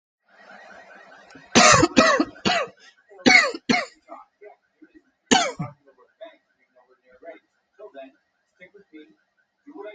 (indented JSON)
{
  "expert_labels": [
    {
      "quality": "good",
      "cough_type": "dry",
      "dyspnea": false,
      "wheezing": false,
      "stridor": false,
      "choking": false,
      "congestion": false,
      "nothing": true,
      "diagnosis": "upper respiratory tract infection",
      "severity": "unknown"
    }
  ],
  "age": 38,
  "gender": "male",
  "respiratory_condition": false,
  "fever_muscle_pain": false,
  "status": "healthy"
}